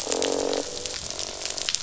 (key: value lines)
label: biophony, croak
recorder: SoundTrap 500